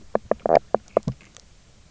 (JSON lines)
{"label": "biophony, knock croak", "recorder": "SoundTrap 300"}